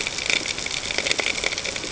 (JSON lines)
{"label": "ambient", "recorder": "HydroMoth"}